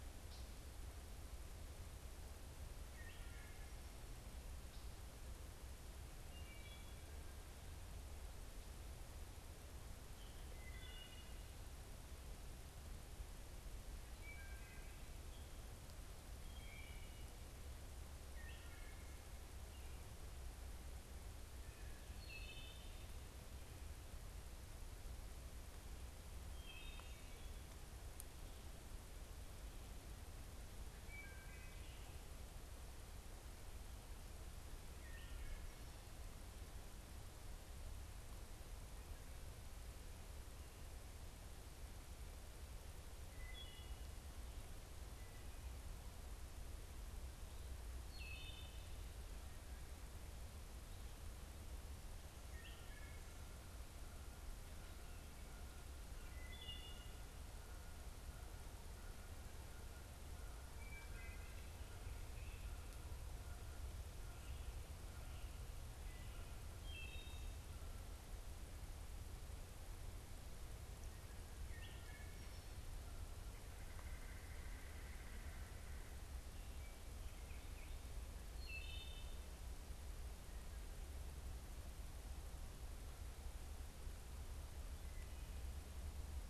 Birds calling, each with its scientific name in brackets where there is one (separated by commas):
Red-bellied Woodpecker (Melanerpes carolinus), Wood Thrush (Hylocichla mustelina)